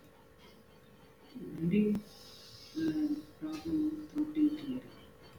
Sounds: Throat clearing